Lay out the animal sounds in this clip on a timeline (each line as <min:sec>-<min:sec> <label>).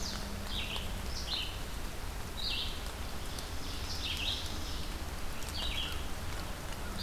0:00.0-0:07.0 Red-eyed Vireo (Vireo olivaceus)
0:02.7-0:05.0 Ovenbird (Seiurus aurocapilla)